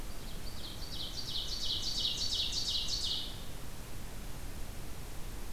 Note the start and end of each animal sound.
0.0s-3.5s: Ovenbird (Seiurus aurocapilla)

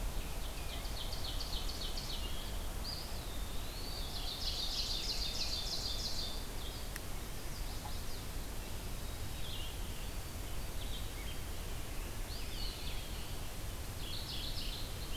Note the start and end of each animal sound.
0.0s-15.2s: Blue-headed Vireo (Vireo solitarius)
0.2s-2.6s: Ovenbird (Seiurus aurocapilla)
2.8s-4.1s: Eastern Wood-Pewee (Contopus virens)
3.9s-5.2s: Mourning Warbler (Geothlypis philadelphia)
3.9s-6.3s: Ovenbird (Seiurus aurocapilla)
7.2s-8.3s: Chestnut-sided Warbler (Setophaga pensylvanica)
12.2s-13.5s: Eastern Wood-Pewee (Contopus virens)
13.9s-14.9s: Mourning Warbler (Geothlypis philadelphia)

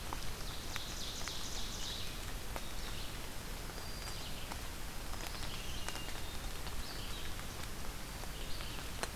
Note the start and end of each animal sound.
0.0s-2.2s: Ovenbird (Seiurus aurocapilla)
1.4s-9.2s: Red-eyed Vireo (Vireo olivaceus)
3.5s-5.8s: Black-throated Green Warbler (Setophaga virens)
5.6s-6.7s: Hermit Thrush (Catharus guttatus)

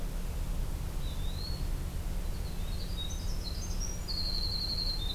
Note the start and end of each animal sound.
0.9s-1.7s: Eastern Wood-Pewee (Contopus virens)
2.2s-5.1s: Winter Wren (Troglodytes hiemalis)

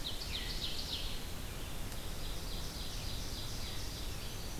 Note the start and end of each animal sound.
0.0s-1.1s: Ovenbird (Seiurus aurocapilla)
0.0s-4.6s: Red-eyed Vireo (Vireo olivaceus)
1.9s-4.1s: Ovenbird (Seiurus aurocapilla)
4.0s-4.6s: Chestnut-sided Warbler (Setophaga pensylvanica)

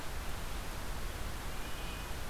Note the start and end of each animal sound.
0.0s-2.3s: Red-breasted Nuthatch (Sitta canadensis)

